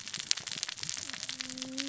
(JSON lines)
{"label": "biophony, cascading saw", "recorder": "SoundTrap 600 or HydroMoth"}